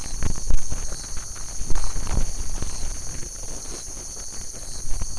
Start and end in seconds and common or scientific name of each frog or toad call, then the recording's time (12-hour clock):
3.1	3.4	Leptodactylus latrans
12:30am